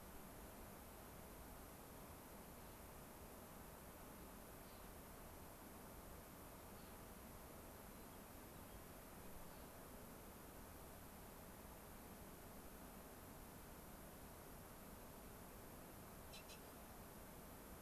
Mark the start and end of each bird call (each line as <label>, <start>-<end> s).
Clark's Nutcracker (Nucifraga columbiana), 4.5-5.0 s
Clark's Nutcracker (Nucifraga columbiana), 6.5-7.0 s
White-crowned Sparrow (Zonotrichia leucophrys), 7.7-8.8 s
Clark's Nutcracker (Nucifraga columbiana), 9.3-9.7 s